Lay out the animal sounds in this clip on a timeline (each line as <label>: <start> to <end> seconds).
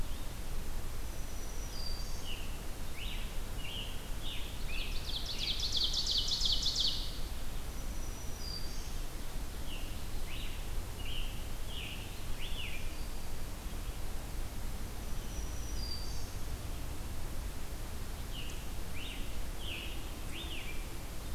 Black-throated Green Warbler (Setophaga virens): 0.8 to 2.6 seconds
Scarlet Tanager (Piranga olivacea): 1.7 to 5.7 seconds
Ovenbird (Seiurus aurocapilla): 4.7 to 7.3 seconds
Black-throated Green Warbler (Setophaga virens): 7.4 to 9.2 seconds
Scarlet Tanager (Piranga olivacea): 9.6 to 13.0 seconds
Black-throated Green Warbler (Setophaga virens): 15.0 to 16.8 seconds
Scarlet Tanager (Piranga olivacea): 18.1 to 21.3 seconds